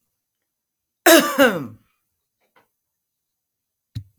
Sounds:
Cough